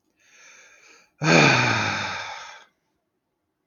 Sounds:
Sigh